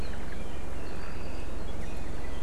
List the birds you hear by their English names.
Omao, Apapane